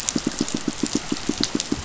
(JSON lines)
{"label": "biophony, pulse", "recorder": "SoundTrap 500"}